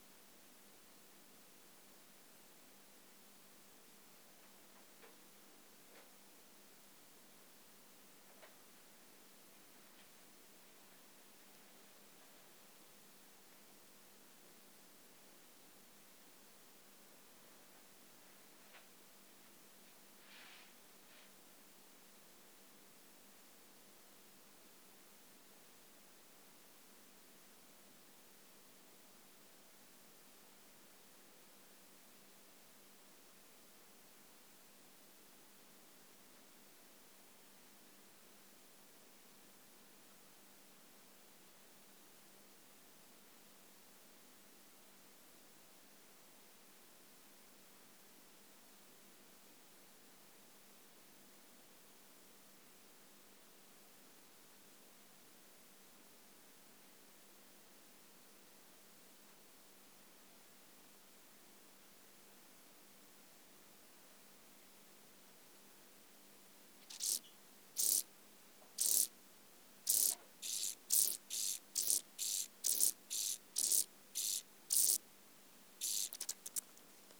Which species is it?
Chorthippus brunneus